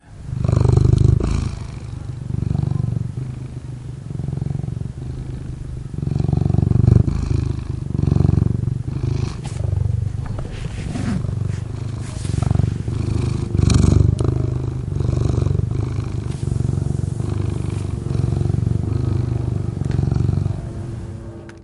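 0.0s A cat purrs loudly and intermittently with a low-pitched sound. 21.6s
0.0s People speaking indistinctly in the background at a crowded outdoor setting. 21.6s
10.4s The sound of a zipper being opened or closed faintly in the background. 12.1s
17.8s An engine sound like an airplane is heard distantly in the background. 21.6s

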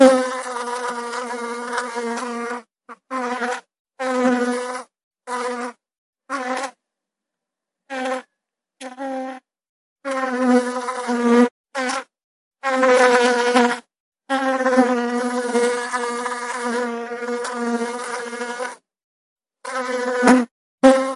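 0.0s A bee buzzes loudly. 6.8s
7.8s A loud bee buzzing with a pause. 9.5s
9.9s A bee buzzes loudly with occasional pauses. 18.8s
19.6s A bee buzzes loudly, then pauses. 21.2s

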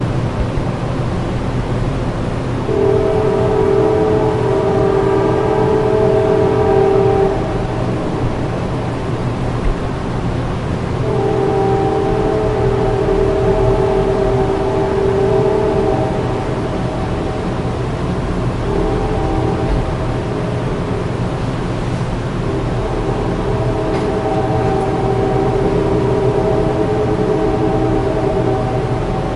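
2.6s A train horn beeps intermittently, echoing. 7.6s
11.2s A train horn beeps intermittently, echoing. 16.4s
18.5s A train horn beeps intermittently, echoing. 21.2s
23.3s A train horn beeps intermittently, echoing. 29.4s

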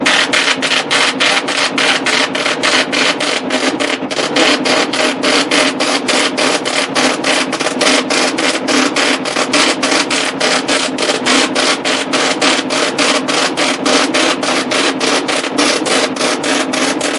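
0.0s A Braille embosser prints loudly and repeatedly nearby. 17.2s

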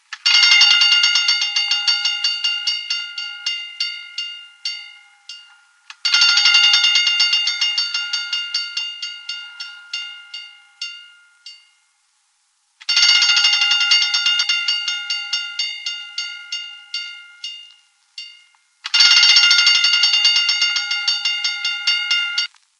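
0.0s An old-style fire alarm bell rings loudly with fading intensity and a metallic sound. 11.7s
12.8s An old-style fire alarm bell rings loudly with fading intensity and a metallic sound. 22.7s

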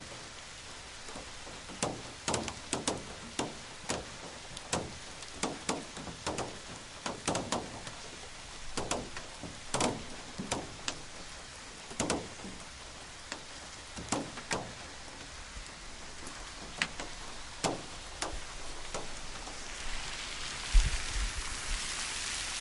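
0.0s Raindrops falling continuously in the background. 22.6s
1.8s Raindrops fall and splash continuously on a metallic surface with short pauses. 7.9s
8.7s Raindrops fall and splash continuously on a metallic surface with short pauses. 11.0s
11.9s Raindrops continuously fall and splash on a metallic surface. 12.3s
13.3s Raindrops fall and splash continuously on a metallic surface with short pauses. 14.6s
16.8s Raindrops fall and splash continuously on a metallic surface with short pauses. 19.1s

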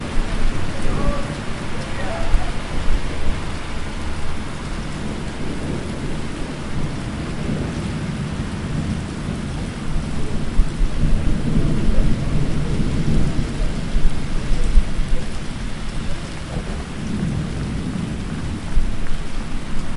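0.0s Thunderstorm with rain. 20.0s

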